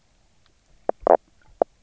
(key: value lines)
label: biophony, knock croak
recorder: SoundTrap 300